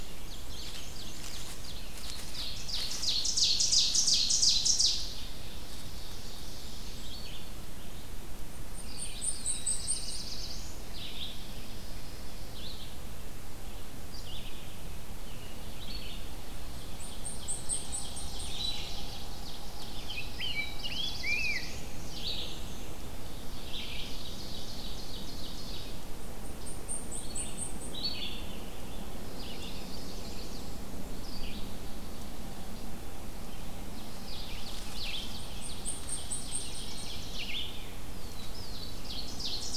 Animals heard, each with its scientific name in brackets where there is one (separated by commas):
American Robin (Turdus migratorius), Chestnut-sided Warbler (Setophaga pensylvanica), Blackpoll Warbler (Setophaga striata), Black-and-white Warbler (Mniotilta varia), Ovenbird (Seiurus aurocapilla), Blackburnian Warbler (Setophaga fusca), Black-throated Blue Warbler (Setophaga caerulescens), Rose-breasted Grosbeak (Pheucticus ludovicianus), Red-eyed Vireo (Vireo olivaceus)